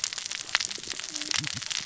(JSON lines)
{"label": "biophony, cascading saw", "recorder": "SoundTrap 600 or HydroMoth"}